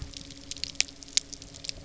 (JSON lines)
{"label": "anthrophony, boat engine", "recorder": "SoundTrap 300"}